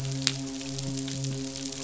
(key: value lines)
label: biophony, midshipman
recorder: SoundTrap 500